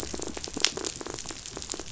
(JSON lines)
{"label": "biophony, rattle", "recorder": "SoundTrap 500"}